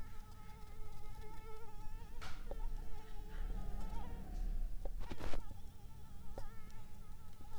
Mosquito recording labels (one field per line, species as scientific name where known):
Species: Anopheles arabiensis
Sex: female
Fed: unfed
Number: one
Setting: cup